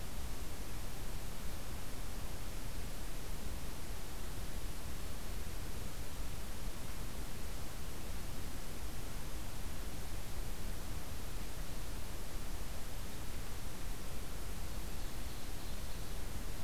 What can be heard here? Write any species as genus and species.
Seiurus aurocapilla